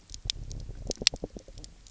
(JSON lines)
{"label": "biophony", "recorder": "SoundTrap 300"}